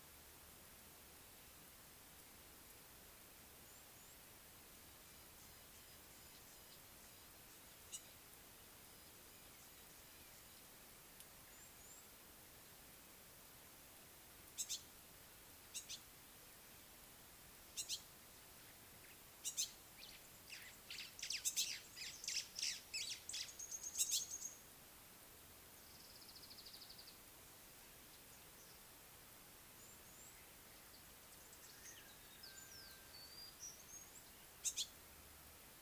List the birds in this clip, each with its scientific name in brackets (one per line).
Yellow-spotted Bush Sparrow (Gymnoris pyrgita)
White-browed Sparrow-Weaver (Plocepasser mahali)
Purple Grenadier (Granatina ianthinogaster)